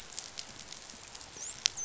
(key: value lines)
label: biophony, dolphin
recorder: SoundTrap 500